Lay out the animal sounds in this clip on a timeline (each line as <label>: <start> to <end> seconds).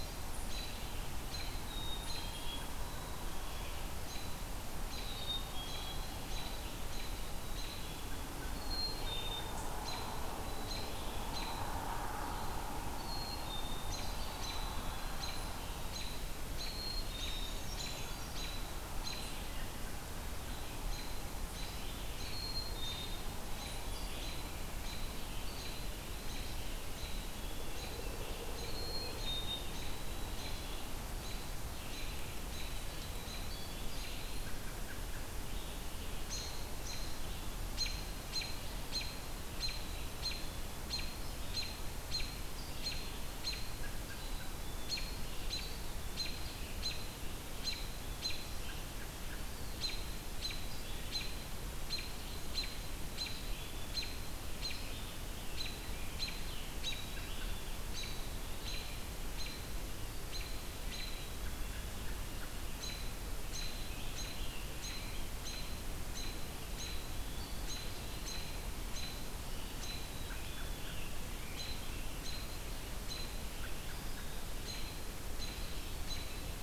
American Robin (Turdus migratorius): 0.4 to 59.6 seconds
Black-capped Chickadee (Poecile atricapillus): 1.6 to 3.8 seconds
Black-capped Chickadee (Poecile atricapillus): 4.8 to 6.2 seconds
Black-capped Chickadee (Poecile atricapillus): 7.3 to 9.5 seconds
Black-capped Chickadee (Poecile atricapillus): 10.3 to 11.4 seconds
Black-capped Chickadee (Poecile atricapillus): 12.9 to 14.0 seconds
Black-capped Chickadee (Poecile atricapillus): 16.5 to 17.7 seconds
Brown Creeper (Certhia americana): 17.3 to 18.5 seconds
Black-capped Chickadee (Poecile atricapillus): 22.2 to 24.2 seconds
Black-capped Chickadee (Poecile atricapillus): 26.8 to 27.8 seconds
Black-capped Chickadee (Poecile atricapillus): 28.6 to 30.9 seconds
Black-capped Chickadee (Poecile atricapillus): 33.0 to 34.5 seconds
Black-capped Chickadee (Poecile atricapillus): 39.6 to 40.6 seconds
Black-capped Chickadee (Poecile atricapillus): 44.1 to 45.0 seconds
Black-capped Chickadee (Poecile atricapillus): 47.6 to 48.5 seconds
Eastern Wood-Pewee (Contopus virens): 49.1 to 49.8 seconds
Black-capped Chickadee (Poecile atricapillus): 53.1 to 54.0 seconds
Scarlet Tanager (Piranga olivacea): 55.3 to 57.7 seconds
American Robin (Turdus migratorius): 60.1 to 76.6 seconds
Black-capped Chickadee (Poecile atricapillus): 60.9 to 61.9 seconds
Scarlet Tanager (Piranga olivacea): 63.2 to 65.8 seconds
Black-capped Chickadee (Poecile atricapillus): 66.7 to 67.6 seconds
Scarlet Tanager (Piranga olivacea): 69.3 to 72.3 seconds
Black-capped Chickadee (Poecile atricapillus): 69.8 to 71.0 seconds